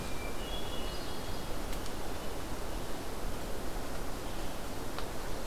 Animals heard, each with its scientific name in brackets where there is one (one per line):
Hermit Thrush (Catharus guttatus)